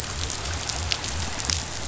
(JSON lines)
{"label": "biophony", "recorder": "SoundTrap 500"}